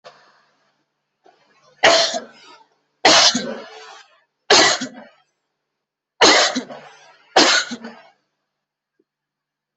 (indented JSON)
{
  "expert_labels": [
    {
      "quality": "good",
      "cough_type": "dry",
      "dyspnea": false,
      "wheezing": false,
      "stridor": false,
      "choking": false,
      "congestion": false,
      "nothing": true,
      "diagnosis": "upper respiratory tract infection",
      "severity": "mild"
    }
  ],
  "age": 20,
  "gender": "female",
  "respiratory_condition": true,
  "fever_muscle_pain": false,
  "status": "symptomatic"
}